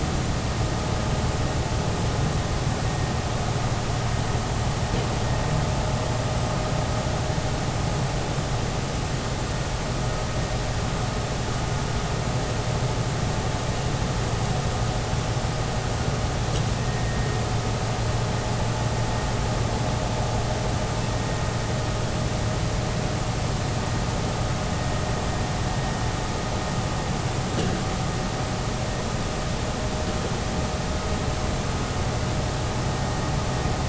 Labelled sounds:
17.0	17.3	vessel noise, 1.8 to 1.9 kHz

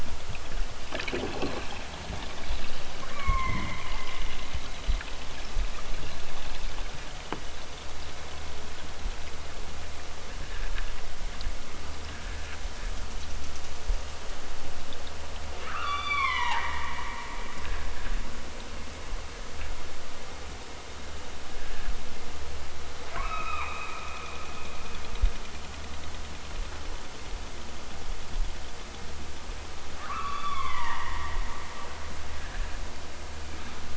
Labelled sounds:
3.0	3.6	killer whale, southern Alaska resident, 0.69 to 2.7 kHz
15.7	16.7	killer whale, southern Alaska resident, 0.46 to 8.0 kHz
23.2	23.7	killer whale, southern Alaska resident, 0.41 to 6.0 kHz
30.0	31.1	killer whale, southern Alaska resident, 0.46 to 5.5 kHz

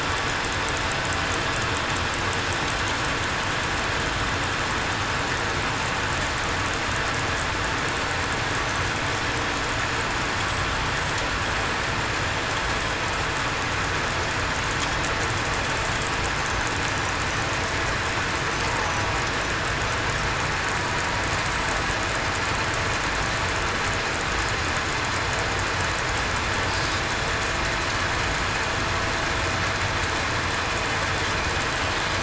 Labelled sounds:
15.0	15.5	killer whale, southern resident, 7.99 to 8.00 kHz

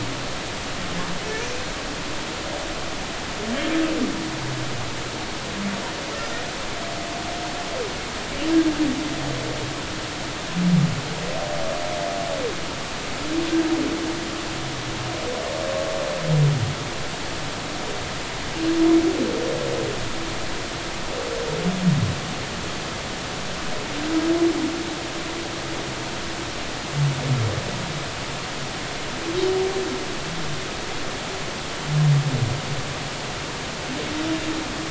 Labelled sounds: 1.4	1.7	humpback whale, 5.7 to 6.2 kHz

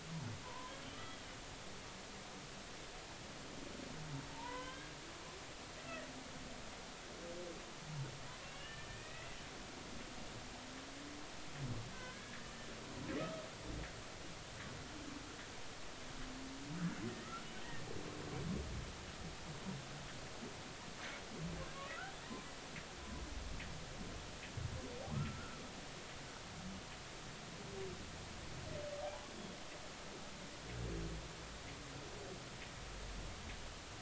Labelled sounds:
0.4	1.2	humpback whale, 0.90 to 3.4 kHz
4.3	4.9	humpback whale, 0.83 to 3.3 kHz
8.4	9.4	humpback whale, 1.6 to 3.0 kHz
11.9	12.4	humpback whale, 1.5 to 1.9 kHz
25.1	25.6	humpback whale, 1.2 to 1.5 kHz

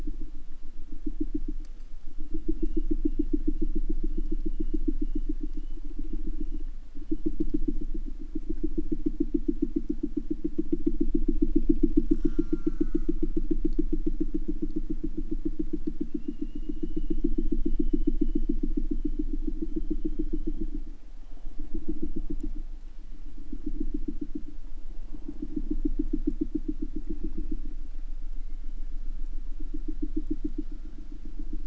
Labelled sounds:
12.0	13.2	killer whale, southern resident, J pod, call S04, 0.67 to 8.0 kHz

